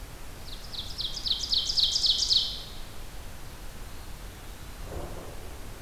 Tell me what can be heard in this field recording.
Ovenbird, Eastern Wood-Pewee